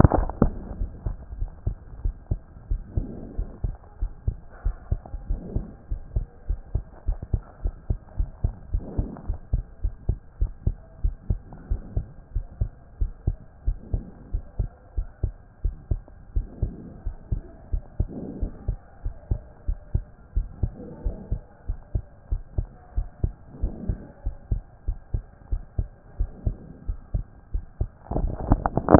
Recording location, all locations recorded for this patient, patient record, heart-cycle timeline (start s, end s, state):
pulmonary valve (PV)
aortic valve (AV)+pulmonary valve (PV)+tricuspid valve (TV)+mitral valve (MV)
#Age: Child
#Sex: Male
#Height: 134.0 cm
#Weight: 28.5 kg
#Pregnancy status: False
#Murmur: Absent
#Murmur locations: nan
#Most audible location: nan
#Systolic murmur timing: nan
#Systolic murmur shape: nan
#Systolic murmur grading: nan
#Systolic murmur pitch: nan
#Systolic murmur quality: nan
#Diastolic murmur timing: nan
#Diastolic murmur shape: nan
#Diastolic murmur grading: nan
#Diastolic murmur pitch: nan
#Diastolic murmur quality: nan
#Outcome: Normal
#Campaign: 2014 screening campaign
0.00	1.27	unannotated
1.27	1.38	diastole
1.38	1.50	S1
1.50	1.66	systole
1.66	1.76	S2
1.76	2.04	diastole
2.04	2.14	S1
2.14	2.30	systole
2.30	2.40	S2
2.40	2.70	diastole
2.70	2.82	S1
2.82	2.96	systole
2.96	3.06	S2
3.06	3.36	diastole
3.36	3.48	S1
3.48	3.64	systole
3.64	3.74	S2
3.74	4.00	diastole
4.00	4.12	S1
4.12	4.26	systole
4.26	4.36	S2
4.36	4.64	diastole
4.64	4.76	S1
4.76	4.90	systole
4.90	5.00	S2
5.00	5.28	diastole
5.28	5.40	S1
5.40	5.54	systole
5.54	5.66	S2
5.66	5.90	diastole
5.90	6.02	S1
6.02	6.14	systole
6.14	6.26	S2
6.26	6.48	diastole
6.48	6.60	S1
6.60	6.74	systole
6.74	6.84	S2
6.84	7.06	diastole
7.06	7.18	S1
7.18	7.32	systole
7.32	7.42	S2
7.42	7.64	diastole
7.64	7.74	S1
7.74	7.88	systole
7.88	7.98	S2
7.98	8.18	diastole
8.18	8.30	S1
8.30	8.42	systole
8.42	8.54	S2
8.54	8.72	diastole
8.72	8.84	S1
8.84	8.96	systole
8.96	9.08	S2
9.08	9.28	diastole
9.28	9.38	S1
9.38	9.52	systole
9.52	9.64	S2
9.64	9.84	diastole
9.84	9.94	S1
9.94	10.08	systole
10.08	10.18	S2
10.18	10.40	diastole
10.40	10.52	S1
10.52	10.66	systole
10.66	10.76	S2
10.76	11.02	diastole
11.02	11.14	S1
11.14	11.28	systole
11.28	11.40	S2
11.40	11.70	diastole
11.70	11.82	S1
11.82	11.96	systole
11.96	12.06	S2
12.06	12.34	diastole
12.34	12.46	S1
12.46	12.60	systole
12.60	12.70	S2
12.70	13.00	diastole
13.00	13.12	S1
13.12	13.26	systole
13.26	13.36	S2
13.36	13.66	diastole
13.66	13.78	S1
13.78	13.92	systole
13.92	14.02	S2
14.02	14.32	diastole
14.32	14.44	S1
14.44	14.58	systole
14.58	14.70	S2
14.70	14.96	diastole
14.96	15.08	S1
15.08	15.22	systole
15.22	15.34	S2
15.34	15.64	diastole
15.64	15.74	S1
15.74	15.90	systole
15.90	16.00	S2
16.00	16.34	diastole
16.34	16.46	S1
16.46	16.62	systole
16.62	16.72	S2
16.72	17.06	diastole
17.06	17.16	S1
17.16	17.30	systole
17.30	17.42	S2
17.42	17.72	diastole
17.72	17.82	S1
17.82	17.98	systole
17.98	18.08	S2
18.08	18.40	diastole
18.40	18.52	S1
18.52	18.68	systole
18.68	18.78	S2
18.78	19.04	diastole
19.04	19.14	S1
19.14	19.30	systole
19.30	19.40	S2
19.40	19.68	diastole
19.68	19.78	S1
19.78	19.94	systole
19.94	20.04	S2
20.04	20.36	diastole
20.36	20.48	S1
20.48	20.62	systole
20.62	20.72	S2
20.72	21.04	diastole
21.04	21.16	S1
21.16	21.30	systole
21.30	21.42	S2
21.42	21.68	diastole
21.68	21.78	S1
21.78	21.94	systole
21.94	22.04	S2
22.04	22.30	diastole
22.30	22.42	S1
22.42	22.56	systole
22.56	22.68	S2
22.68	22.96	diastole
22.96	23.08	S1
23.08	23.22	systole
23.22	23.32	S2
23.32	23.62	diastole
23.62	23.74	S1
23.74	23.88	systole
23.88	23.98	S2
23.98	24.24	diastole
24.24	24.36	S1
24.36	24.50	systole
24.50	24.62	S2
24.62	24.88	diastole
24.88	24.98	S1
24.98	25.12	systole
25.12	25.24	S2
25.24	25.50	diastole
25.50	25.62	S1
25.62	25.78	systole
25.78	25.88	S2
25.88	26.18	diastole
26.18	26.30	S1
26.30	26.44	systole
26.44	26.56	S2
26.56	26.88	diastole
26.88	26.98	S1
26.98	27.14	systole
27.14	27.26	S2
27.26	27.54	diastole
27.54	27.64	S1
27.64	27.80	systole
27.80	27.88	S2
27.88	28.14	diastole
28.14	28.99	unannotated